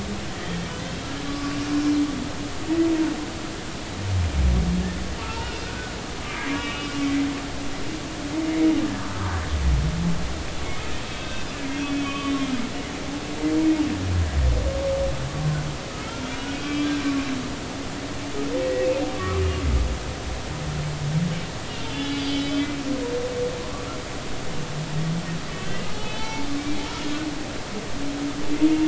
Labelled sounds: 0.3	0.6	humpback whale, 1.8 to 2.0 kHz
1.3	1.6	humpback whale, 1.1 to 1.2 kHz
5.2	6.9	humpback whale, 0.86 to 2.9 kHz
11.2	11.5	humpback whale, 1.5 to 2.7 kHz
11.8	12.3	humpback whale, 1.1 to 3.5 kHz
16.6	16.9	humpback whale, 1.1 to 3.3 kHz
18.6	19.4	humpback whale, 1.1 to 2.0 kHz
21.9	22.7	humpback whale, 2.9 to 4.8 kHz
25.5	26.5	humpback whale, 0.83 to 4.0 kHz

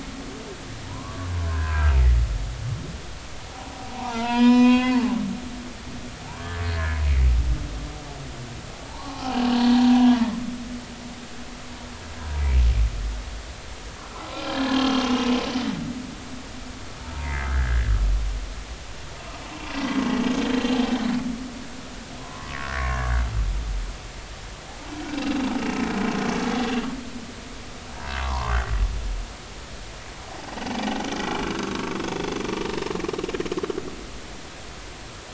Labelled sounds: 0.8	1.9	humpback whale, 0.86 to 1.7 kHz
3.9	5.2	humpback whale, 0.80 to 7.3 kHz
6.2	6.6	humpback whale, 0.80 to 1.2 kHz
8.9	10.4	humpback whale, 0.80 to 4.2 kHz
14.4	15.0	humpback whale, 1.6 to 3.3 kHz
17.0	17.9	humpback whale, 0.86 to 2.1 kHz
22.2	23.1	humpback whale, 0.96 to 1.9 kHz
25.1	25.4	humpback whale, 2.6 to 2.8 kHz
28.2	28.6	humpback whale, 0.86 to 1.2 kHz
31.5	32.5	humpback whale, 1.1 to 6.1 kHz

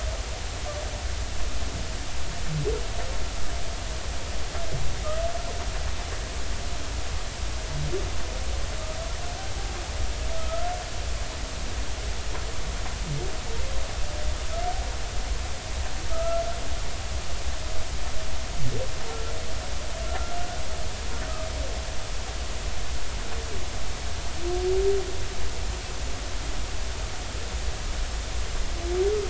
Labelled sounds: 10.3	10.7	humpback whale, 1.2 to 1.4 kHz
16.1	16.4	humpback whale, 1.2 to 1.4 kHz

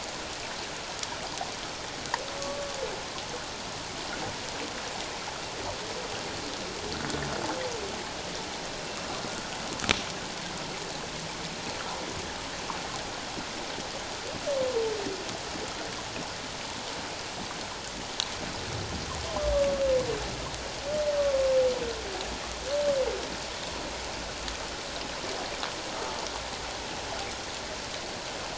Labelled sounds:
2.4	2.7	humpback whale, 1.1 to 1.2 kHz
8.8	9.1	humpback whale, 2.7 to 2.8 kHz

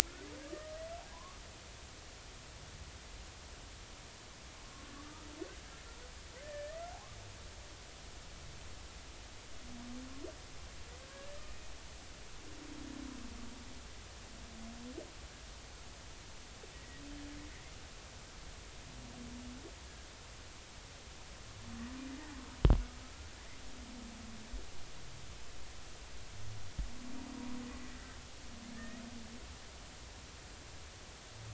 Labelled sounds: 1.1	1.4	humpback whale, 0.93 to 1.2 kHz
5.0	5.3	humpback whale, 1.2 to 1.3 kHz
6.4	6.9	humpback whale, 1.7 to 2.0 kHz
11.1	11.7	humpback whale, 1.5 to 2.6 kHz
16.7	17.0	humpback whale, 1.9 to 2.0 kHz
27.9	29.0	humpback whale, 1.5 to 2.0 kHz

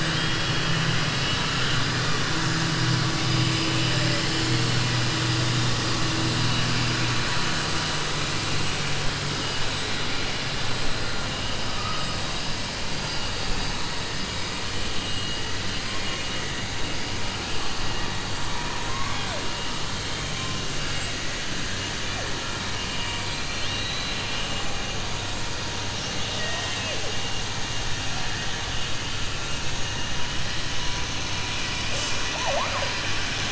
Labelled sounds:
0.0	0.8	killer whale, southern resident, 1.8 to 3.9 kHz
18.5	19.4	killer whale, southern resident, 0.58 to 3.6 kHz
23.2	24.5	killer whale, southern resident, 1.9 to 4.4 kHz
26.1	27.1	killer whale, southern resident, 0.44 to 4.4 kHz

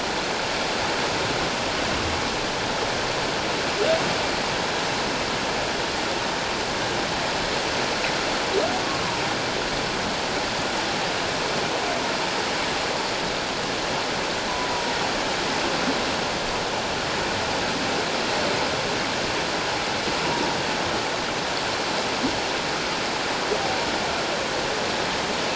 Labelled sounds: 14.7	14.9	humpback whale, 0.88 to 1.0 kHz

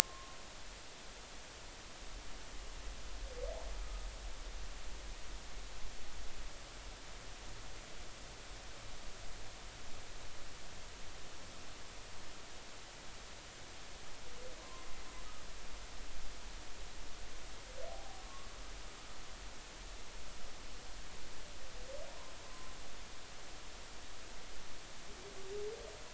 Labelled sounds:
1.0	1.4	humpback whale, 1.0 to 1.2 kHz
3.8	4.1	humpback whale, 1.2 to 1.3 kHz
14.6	14.9	humpback whale, 0.96 to 1.1 kHz
17.9	18.5	humpback whale, 0.80 to 1.2 kHz
22.5	22.7	humpback whale, 0.99 to 1.1 kHz

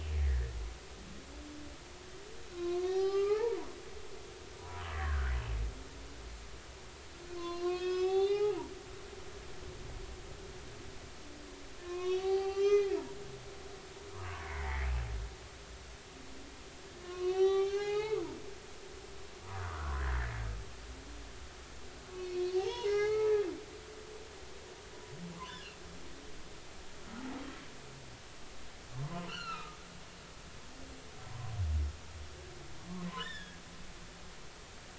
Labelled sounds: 0.2	0.6	humpback whale, 1.6 to 2.1 kHz
2.5	3.6	humpback whale, 0.80 to 5.2 kHz
4.6	5.3	humpback whale, 0.93 to 2.0 kHz
7.2	8.6	humpback whale, 0.80 to 6.4 kHz
11.8	12.9	humpback whale, 0.80 to 6.2 kHz
14.1	14.9	humpback whale, 0.93 to 2.3 kHz
17.0	18.2	humpback whale, 0.80 to 6.1 kHz
19.6	20.0	humpback whale, 0.99 to 1.7 kHz
22.1	23.3	humpback whale, 0.80 to 5.6 kHz
25.4	25.7	humpback whale, 0.93 to 1.8 kHz
28.9	29.8	humpback whale, 0.86 to 4.5 kHz
31.2	31.5	humpback whale, 0.93 to 1.2 kHz
33.1	33.6	humpback whale, 0.96 to 3.8 kHz

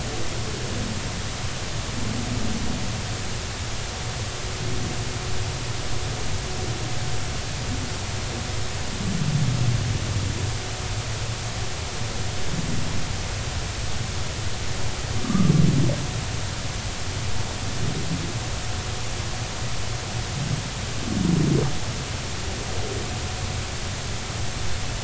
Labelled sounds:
15.2	15.5	humpback whale, 1.0 to 1.3 kHz

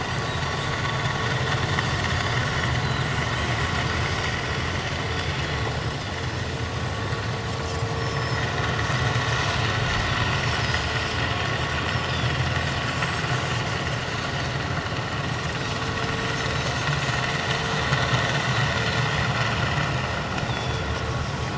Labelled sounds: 2.8	3.1	Pacific white-sided dolphin, 3.7 to 4.3 kHz
8.0	8.4	Pacific white-sided dolphin, 5.1 to 5.5 kHz
10.6	10.9	Pacific white-sided dolphin, 4.8 to 5.3 kHz
11.9	12.3	Pacific white-sided dolphin, 4.6 to 5.6 kHz
20.4	20.9	Pacific white-sided dolphin, 3.3 to 5.8 kHz

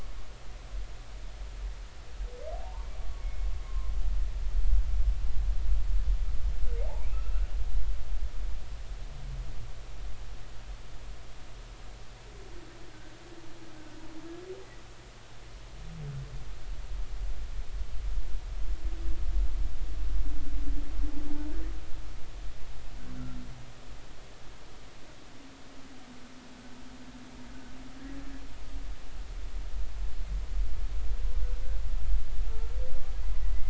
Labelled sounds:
2.5	2.9	humpback whale, 0.80 to 1.2 kHz
3.2	3.9	humpback whale, 0.96 to 2.2 kHz
6.8	7.5	humpback whale, 0.80 to 1.5 kHz
32.5	32.7	humpback whale, 1.3 to 1.4 kHz

